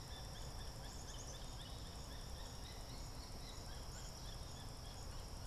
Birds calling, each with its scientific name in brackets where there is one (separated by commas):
Black-capped Chickadee (Poecile atricapillus), unidentified bird